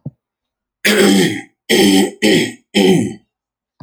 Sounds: Throat clearing